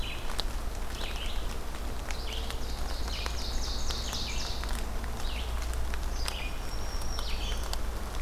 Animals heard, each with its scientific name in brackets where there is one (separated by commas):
Red-eyed Vireo (Vireo olivaceus), Ovenbird (Seiurus aurocapilla), Black-throated Green Warbler (Setophaga virens)